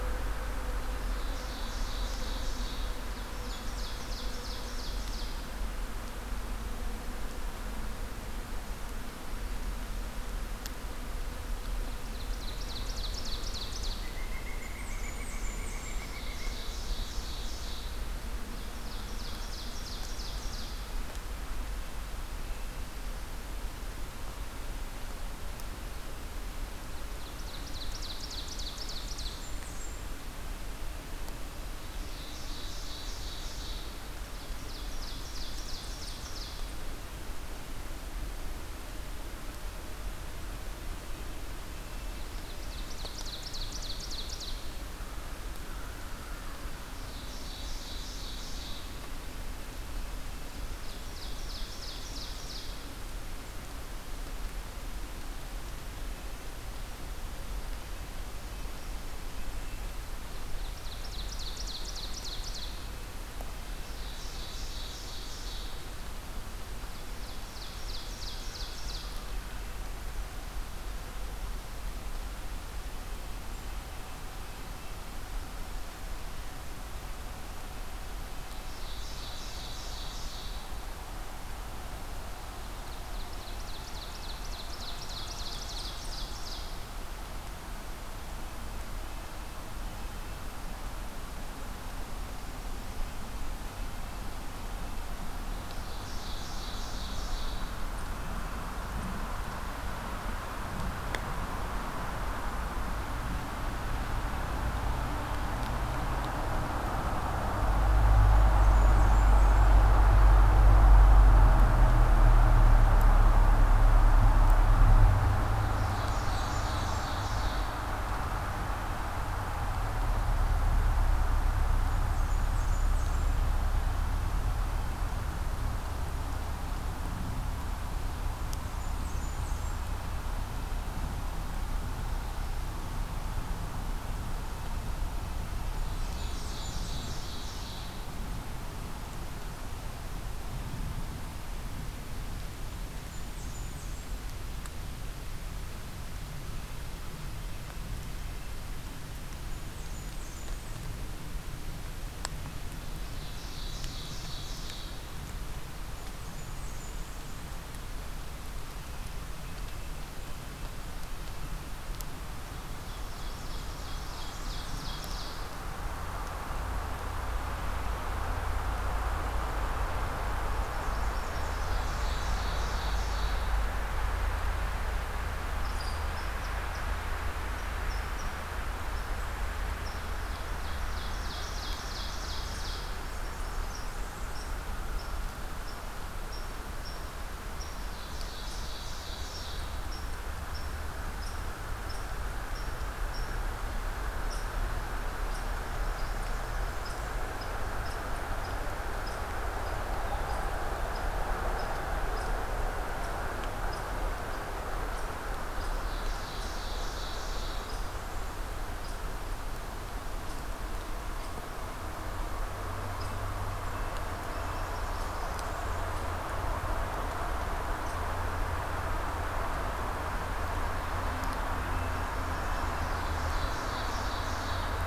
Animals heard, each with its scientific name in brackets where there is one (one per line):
Red-breasted Nuthatch (Sitta canadensis)
Red Squirrel (Tamiasciurus hudsonicus)
Blackburnian Warbler (Setophaga fusca)
Pileated Woodpecker (Dryocopus pileatus)
Ovenbird (Seiurus aurocapilla)